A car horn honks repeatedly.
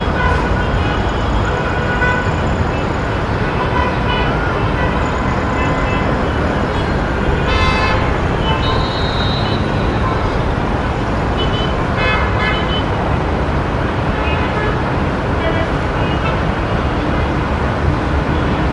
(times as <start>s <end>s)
2.0s 2.4s, 3.7s 5.0s, 7.1s 8.5s, 11.9s 12.3s